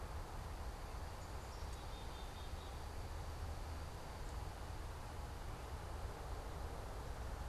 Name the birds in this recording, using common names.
Black-capped Chickadee